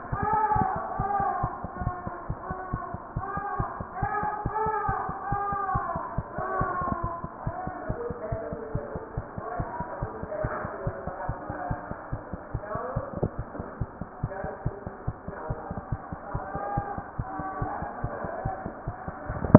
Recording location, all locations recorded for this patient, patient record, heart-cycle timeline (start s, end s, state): mitral valve (MV)
mitral valve (MV)
#Age: Infant
#Sex: Female
#Height: 52.0 cm
#Weight: 4.92 kg
#Pregnancy status: False
#Murmur: Absent
#Murmur locations: nan
#Most audible location: nan
#Systolic murmur timing: nan
#Systolic murmur shape: nan
#Systolic murmur grading: nan
#Systolic murmur pitch: nan
#Systolic murmur quality: nan
#Diastolic murmur timing: nan
#Diastolic murmur shape: nan
#Diastolic murmur grading: nan
#Diastolic murmur pitch: nan
#Diastolic murmur quality: nan
#Outcome: Abnormal
#Campaign: 2015 screening campaign
0.00	8.73	unannotated
8.73	8.81	S1
8.81	8.94	systole
8.94	9.02	S2
9.02	9.16	diastole
9.16	9.26	S1
9.26	9.36	systole
9.36	9.42	S2
9.42	9.57	diastole
9.57	9.65	S1
9.65	9.79	systole
9.79	9.85	S2
9.85	10.00	diastole
10.00	10.08	S1
10.08	10.21	systole
10.21	10.28	S2
10.28	10.42	diastole
10.42	10.49	S1
10.49	10.63	systole
10.63	10.68	S2
10.68	10.85	diastole
10.85	10.92	S1
10.92	11.05	systole
11.05	11.12	S2
11.12	11.27	diastole
11.27	11.34	S1
11.34	11.48	systole
11.48	11.55	S2
11.55	11.69	diastole
11.69	11.76	S1
11.76	11.89	systole
11.89	11.95	S2
11.95	12.11	diastole
12.11	12.18	S1
12.18	12.32	systole
12.32	12.38	S2
12.38	12.53	diastole
12.53	12.60	S1
12.60	12.74	systole
12.74	12.80	S2
12.80	12.95	diastole
12.95	13.01	S1
13.01	13.16	systole
13.16	13.22	S2
13.22	13.37	diastole
13.37	13.44	S1
13.44	13.58	systole
13.58	13.63	S2
13.63	13.80	diastole
13.80	13.86	S1
13.86	14.00	systole
14.00	14.05	S2
14.05	14.22	diastole
14.22	14.29	S1
14.29	19.58	unannotated